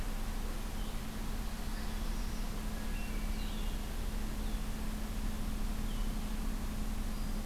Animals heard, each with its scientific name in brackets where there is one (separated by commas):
Hermit Thrush (Catharus guttatus), Red-winged Blackbird (Agelaius phoeniceus), Northern Parula (Setophaga americana)